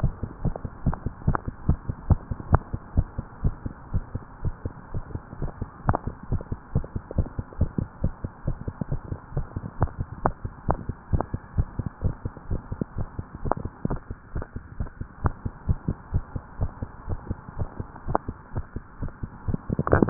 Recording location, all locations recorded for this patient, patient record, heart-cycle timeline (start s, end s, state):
tricuspid valve (TV)
aortic valve (AV)+pulmonary valve (PV)+tricuspid valve (TV)+mitral valve (MV)
#Age: Adolescent
#Sex: Female
#Height: 160.0 cm
#Weight: 46.7 kg
#Pregnancy status: False
#Murmur: Absent
#Murmur locations: nan
#Most audible location: nan
#Systolic murmur timing: nan
#Systolic murmur shape: nan
#Systolic murmur grading: nan
#Systolic murmur pitch: nan
#Systolic murmur quality: nan
#Diastolic murmur timing: nan
#Diastolic murmur shape: nan
#Diastolic murmur grading: nan
#Diastolic murmur pitch: nan
#Diastolic murmur quality: nan
#Outcome: Normal
#Campaign: 2015 screening campaign
0.00	2.78	unannotated
2.78	2.96	diastole
2.96	3.08	S1
3.08	3.18	systole
3.18	3.26	S2
3.26	3.44	diastole
3.44	3.54	S1
3.54	3.64	systole
3.64	3.74	S2
3.74	3.94	diastole
3.94	4.04	S1
4.04	4.12	systole
4.12	4.22	S2
4.22	4.40	diastole
4.40	4.54	S1
4.54	4.62	systole
4.62	4.70	S2
4.70	4.91	diastole
4.91	5.04	S1
5.04	5.12	systole
5.12	5.20	S2
5.20	5.40	diastole
5.40	5.50	S1
5.50	5.59	systole
5.59	5.68	S2
5.68	5.86	diastole
5.86	5.98	S1
5.98	6.06	systole
6.06	6.12	S2
6.12	6.29	diastole
6.29	6.40	S1
6.40	6.49	systole
6.49	6.56	S2
6.56	6.74	diastole
6.74	6.86	S1
6.86	6.94	systole
6.94	7.04	S2
7.04	7.16	diastole
7.16	7.28	S1
7.28	7.35	systole
7.35	7.46	S2
7.46	7.57	diastole
7.57	7.70	S1
7.70	7.80	systole
7.80	7.88	S2
7.88	8.02	diastole
8.02	8.14	S1
8.14	8.21	systole
8.21	8.30	S2
8.30	8.46	diastole
8.46	8.58	S1
8.58	8.65	systole
8.65	8.74	S2
8.74	8.89	diastole
8.89	9.00	S1
9.00	9.08	systole
9.08	9.18	S2
9.18	9.34	diastole
9.34	9.46	S1
9.46	9.54	systole
9.54	9.64	S2
9.64	9.79	diastole
9.79	9.90	S1
9.90	9.97	systole
9.97	10.08	S2
10.08	10.23	diastole
10.23	10.34	S1
10.34	10.42	systole
10.42	10.52	S2
10.52	10.68	diastole
10.68	10.80	S1
10.80	10.87	systole
10.87	10.94	S2
10.94	11.11	diastole
11.11	11.23	S1
11.23	11.30	systole
11.30	11.40	S2
11.40	11.56	diastole
11.56	11.64	S1
11.64	11.77	systole
11.77	11.84	S2
11.84	12.04	diastole
12.04	12.16	S1
12.16	12.24	systole
12.24	12.30	S2
12.30	12.49	diastole
12.49	20.10	unannotated